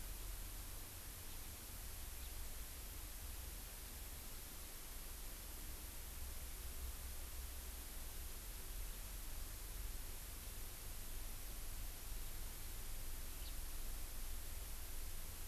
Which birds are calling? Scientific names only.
Haemorhous mexicanus